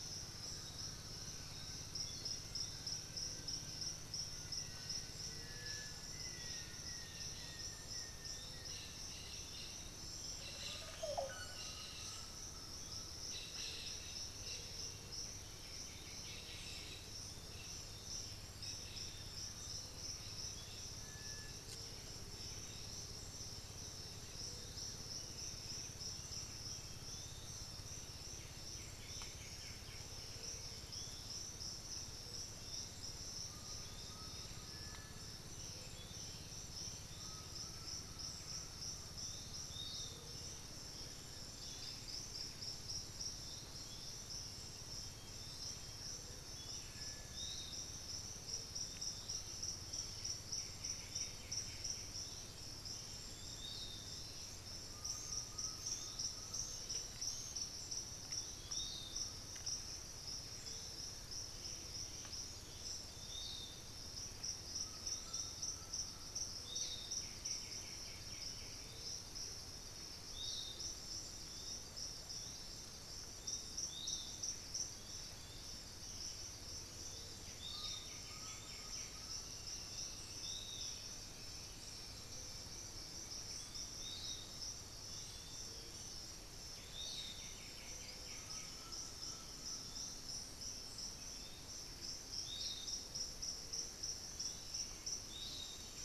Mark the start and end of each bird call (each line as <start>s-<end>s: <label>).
0.0s-9.5s: unidentified bird
0.0s-96.0s: Piratic Flycatcher (Legatus leucophaius)
4.4s-31.4s: Cobalt-winged Parakeet (Brotogeris cyanoptera)
5.3s-6.1s: Cinereous Tinamou (Crypturellus cinereus)
10.0s-11.7s: Olive Oropendola (Psarocolius bifasciatus)
10.5s-13.2s: Undulated Tinamou (Crypturellus undulatus)
15.2s-17.3s: White-winged Becard (Pachyramphus polychopterus)
18.6s-21.0s: unidentified bird
20.9s-21.7s: Cinereous Tinamou (Crypturellus cinereus)
28.1s-30.2s: White-winged Becard (Pachyramphus polychopterus)
30.7s-86.0s: unidentified bird
33.4s-40.2s: Undulated Tinamou (Crypturellus undulatus)
34.1s-37.3s: Black-throated Antbird (Myrmophylax atrothorax)
46.7s-47.6s: Cinereous Tinamou (Crypturellus cinereus)
50.1s-52.2s: White-winged Becard (Pachyramphus polychopterus)
54.8s-56.9s: Undulated Tinamou (Crypturellus undulatus)
56.1s-58.2s: Black-throated Antbird (Myrmophylax atrothorax)
58.3s-67.2s: Thrush-like Wren (Campylorhynchus turdinus)
64.6s-66.6s: Undulated Tinamou (Crypturellus undulatus)
66.7s-68.8s: White-winged Becard (Pachyramphus polychopterus)
77.2s-79.3s: White-winged Becard (Pachyramphus polychopterus)
77.6s-79.5s: Undulated Tinamou (Crypturellus undulatus)
79.1s-84.6s: Elegant Woodcreeper (Xiphorhynchus elegans)
86.9s-88.9s: White-winged Becard (Pachyramphus polychopterus)
88.3s-90.4s: Undulated Tinamou (Crypturellus undulatus)